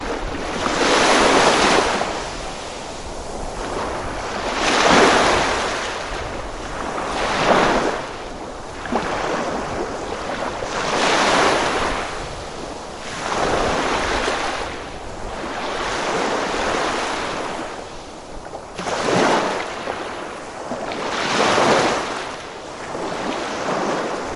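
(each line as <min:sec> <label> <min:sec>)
0:00.0 A steady, soft hum of ocean waves. 0:24.4
0:00.3 Sea waves gently crashing onto the shore, rhythmic and softly echoing. 0:02.4
0:04.0 Sea waves gently crashing onto the shore, rhythmic and softly echoing. 0:12.3
0:13.0 Sea waves gently crashing onto the shore, rhythmic and softly echoing. 0:14.8
0:15.3 Sea waves gently crashing onto the shore with a rhythmic, soft echo. 0:19.9
0:20.7 Sea waves gently crashing onto the shore with a rhythmic, soft echo. 0:22.3
0:23.0 Sea waves gently crashing onto the shore, rhythmic and softly echoing. 0:24.4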